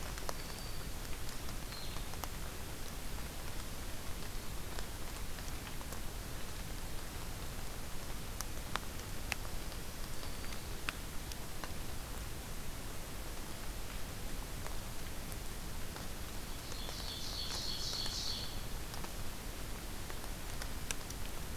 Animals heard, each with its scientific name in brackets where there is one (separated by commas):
Blue-headed Vireo (Vireo solitarius), Black-throated Green Warbler (Setophaga virens), Ovenbird (Seiurus aurocapilla)